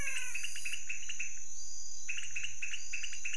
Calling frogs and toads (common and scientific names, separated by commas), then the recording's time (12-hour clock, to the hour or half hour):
pointedbelly frog (Leptodactylus podicipinus)
2:30am